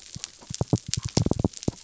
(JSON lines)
{"label": "biophony", "recorder": "SoundTrap 300"}